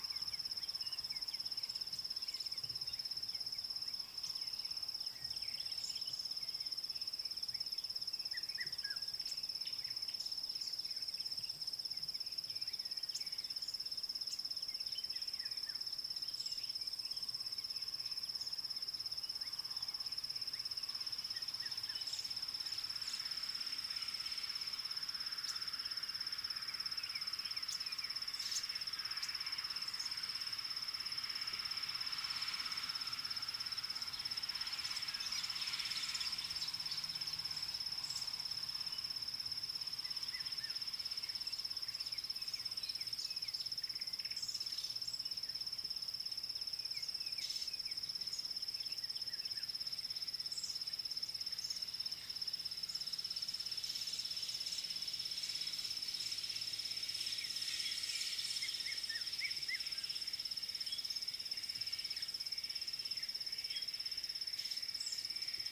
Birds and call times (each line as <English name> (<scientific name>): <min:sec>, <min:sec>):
Red-chested Cuckoo (Cuculus solitarius): 0:08.7, 0:59.1
Vitelline Masked-Weaver (Ploceus vitellinus): 0:30.1